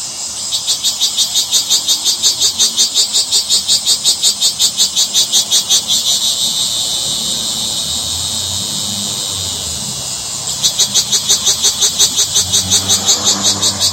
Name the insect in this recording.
Lyristes gemellus, a cicada